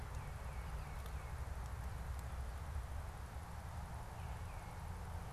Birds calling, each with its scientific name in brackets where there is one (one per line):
Tufted Titmouse (Baeolophus bicolor)